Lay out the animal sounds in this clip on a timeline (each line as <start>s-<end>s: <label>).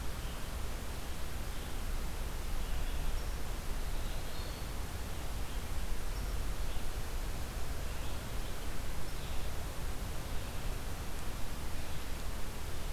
0.0s-12.9s: Red-eyed Vireo (Vireo olivaceus)
3.6s-4.8s: Eastern Wood-Pewee (Contopus virens)